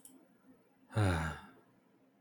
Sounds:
Sigh